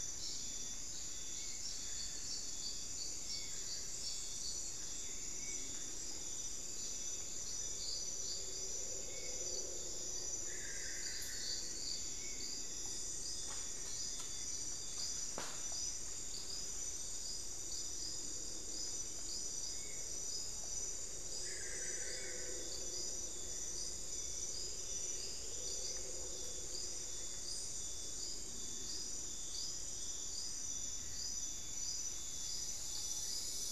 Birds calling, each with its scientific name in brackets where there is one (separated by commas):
Solitary Black Cacique (Cacicus solitarius), Spot-winged Antshrike (Pygiptila stellaris), Hauxwell's Thrush (Turdus hauxwelli)